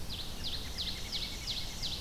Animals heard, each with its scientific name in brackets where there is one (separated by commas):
Ovenbird (Seiurus aurocapilla), Red-eyed Vireo (Vireo olivaceus), American Robin (Turdus migratorius)